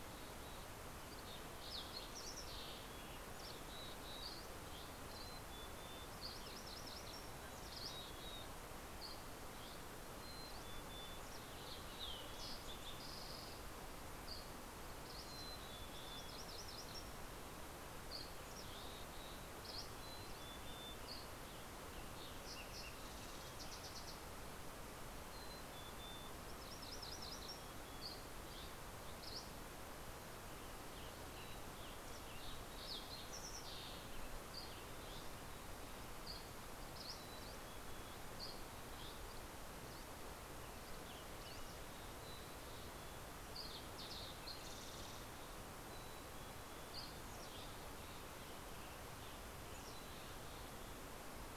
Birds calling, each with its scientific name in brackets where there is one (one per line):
Western Tanager (Piranga ludoviciana)
MacGillivray's Warbler (Geothlypis tolmiei)
Fox Sparrow (Passerella iliaca)
Green-tailed Towhee (Pipilo chlorurus)
Mountain Chickadee (Poecile gambeli)
Dusky Flycatcher (Empidonax oberholseri)